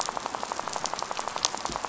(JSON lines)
{"label": "biophony, rattle", "recorder": "SoundTrap 500"}